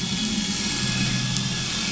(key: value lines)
label: anthrophony, boat engine
recorder: SoundTrap 500